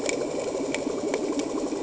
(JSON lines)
{"label": "anthrophony, boat engine", "recorder": "HydroMoth"}